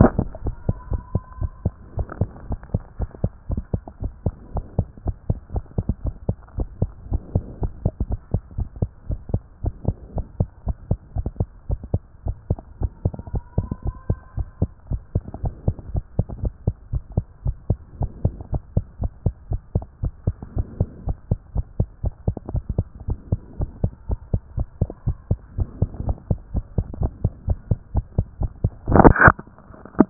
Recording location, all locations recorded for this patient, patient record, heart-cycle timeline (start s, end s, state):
tricuspid valve (TV)
aortic valve (AV)+pulmonary valve (PV)+tricuspid valve (TV)+mitral valve (MV)
#Age: Child
#Sex: Male
#Height: 93.0 cm
#Weight: 14.8 kg
#Pregnancy status: False
#Murmur: Absent
#Murmur locations: nan
#Most audible location: nan
#Systolic murmur timing: nan
#Systolic murmur shape: nan
#Systolic murmur grading: nan
#Systolic murmur pitch: nan
#Systolic murmur quality: nan
#Diastolic murmur timing: nan
#Diastolic murmur shape: nan
#Diastolic murmur grading: nan
#Diastolic murmur pitch: nan
#Diastolic murmur quality: nan
#Outcome: Abnormal
#Campaign: 2014 screening campaign
0.00	0.30	unannotated
0.30	0.44	diastole
0.44	0.56	S1
0.56	0.64	systole
0.64	0.76	S2
0.76	0.90	diastole
0.90	1.04	S1
1.04	1.12	systole
1.12	1.22	S2
1.22	1.38	diastole
1.38	1.52	S1
1.52	1.62	systole
1.62	1.76	S2
1.76	1.94	diastole
1.94	2.08	S1
2.08	2.18	systole
2.18	2.30	S2
2.30	2.46	diastole
2.46	2.60	S1
2.60	2.70	systole
2.70	2.84	S2
2.84	3.00	diastole
3.00	3.10	S1
3.10	3.20	systole
3.20	3.32	S2
3.32	3.50	diastole
3.50	3.64	S1
3.64	3.70	systole
3.70	3.84	S2
3.84	4.02	diastole
4.02	4.12	S1
4.12	4.22	systole
4.22	4.36	S2
4.36	4.54	diastole
4.54	4.66	S1
4.66	4.74	systole
4.74	4.88	S2
4.88	5.06	diastole
5.06	5.16	S1
5.16	5.26	systole
5.26	5.40	S2
5.40	5.54	diastole
5.54	5.64	S1
5.64	5.74	systole
5.74	5.86	S2
5.86	6.04	diastole
6.04	6.14	S1
6.14	6.24	systole
6.24	6.36	S2
6.36	6.54	diastole
6.54	6.68	S1
6.68	6.78	systole
6.78	6.92	S2
6.92	7.08	diastole
7.08	7.22	S1
7.22	7.32	systole
7.32	7.46	S2
7.46	7.62	diastole
7.62	7.72	S1
7.72	7.82	systole
7.82	7.94	S2
7.94	8.08	diastole
8.08	8.20	S1
8.20	8.30	systole
8.30	8.42	S2
8.42	8.56	diastole
8.56	8.68	S1
8.68	8.78	systole
8.78	8.92	S2
8.92	9.08	diastole
9.08	9.20	S1
9.20	9.30	systole
9.30	9.42	S2
9.42	9.60	diastole
9.60	9.74	S1
9.74	9.86	systole
9.86	9.98	S2
9.98	10.14	diastole
10.14	10.26	S1
10.26	10.36	systole
10.36	10.48	S2
10.48	10.66	diastole
10.66	10.76	S1
10.76	10.88	systole
10.88	10.98	S2
10.98	11.16	diastole
11.16	11.26	S1
11.26	11.38	systole
11.38	11.48	S2
11.48	11.66	diastole
11.66	11.80	S1
11.80	11.92	systole
11.92	12.04	S2
12.04	12.24	diastole
12.24	12.36	S1
12.36	12.48	systole
12.48	12.58	S2
12.58	12.78	diastole
12.78	12.92	S1
12.92	13.04	systole
13.04	13.14	S2
13.14	13.32	diastole
13.32	13.44	S1
13.44	13.56	systole
13.56	13.70	S2
13.70	13.86	diastole
13.86	13.96	S1
13.96	14.06	systole
14.06	14.20	S2
14.20	14.38	diastole
14.38	14.48	S1
14.48	14.60	systole
14.60	14.70	S2
14.70	14.88	diastole
14.88	15.02	S1
15.02	15.14	systole
15.14	15.24	S2
15.24	15.40	diastole
15.40	15.54	S1
15.54	15.66	systole
15.66	15.76	S2
15.76	15.92	diastole
15.92	16.04	S1
16.04	16.16	systole
16.16	16.26	S2
16.26	16.40	diastole
16.40	16.54	S1
16.54	16.66	systole
16.66	16.76	S2
16.76	16.94	diastole
16.94	17.04	S1
17.04	17.14	systole
17.14	17.26	S2
17.26	17.44	diastole
17.44	17.56	S1
17.56	17.68	systole
17.68	17.80	S2
17.80	17.98	diastole
17.98	18.12	S1
18.12	18.22	systole
18.22	18.36	S2
18.36	18.52	diastole
18.52	18.64	S1
18.64	18.74	systole
18.74	18.84	S2
18.84	19.02	diastole
19.02	19.12	S1
19.12	19.24	systole
19.24	19.34	S2
19.34	19.50	diastole
19.50	19.62	S1
19.62	19.74	systole
19.74	19.88	S2
19.88	20.04	diastole
20.04	20.14	S1
20.14	20.26	systole
20.26	20.38	S2
20.38	20.54	diastole
20.54	20.68	S1
20.68	20.78	systole
20.78	20.88	S2
20.88	21.04	diastole
21.04	21.18	S1
21.18	21.30	systole
21.30	21.40	S2
21.40	21.56	diastole
21.56	21.66	S1
21.66	21.78	systole
21.78	21.90	S2
21.90	22.04	diastole
22.04	22.14	S1
22.14	22.26	systole
22.26	22.36	S2
22.36	22.52	diastole
22.52	22.64	S1
22.64	22.76	systole
22.76	22.86	S2
22.86	23.06	diastole
23.06	23.20	S1
23.20	23.30	systole
23.30	23.40	S2
23.40	23.58	diastole
23.58	23.72	S1
23.72	23.82	systole
23.82	23.92	S2
23.92	24.10	diastole
24.10	24.20	S1
24.20	24.32	systole
24.32	24.42	S2
24.42	24.56	diastole
24.56	24.68	S1
24.68	24.80	systole
24.80	24.90	S2
24.90	25.06	diastole
25.06	25.18	S1
25.18	25.30	systole
25.30	25.40	S2
25.40	25.56	diastole
25.56	25.70	S1
25.70	25.80	systole
25.80	25.90	S2
25.90	26.04	diastole
26.04	26.18	S1
26.18	26.26	systole
26.26	26.38	S2
26.38	26.52	diastole
26.52	26.66	S1
26.66	26.76	systole
26.76	26.86	S2
26.86	26.98	diastole
26.98	27.12	S1
27.12	27.20	systole
27.20	27.32	S2
27.32	27.46	diastole
27.46	27.60	S1
27.60	27.70	systole
27.70	27.80	S2
27.80	27.92	diastole
27.92	28.06	S1
28.06	28.16	systole
28.16	28.30	S2
28.30	28.42	diastole
28.42	28.52	S1
28.52	28.62	systole
28.62	30.10	unannotated